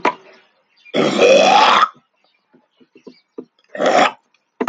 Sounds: Throat clearing